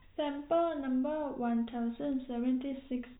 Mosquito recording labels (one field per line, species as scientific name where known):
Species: no mosquito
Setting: cup